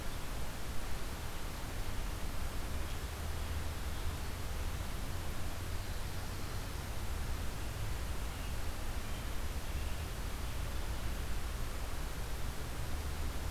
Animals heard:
forest ambience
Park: Marsh-Billings-Rockefeller National Historical Park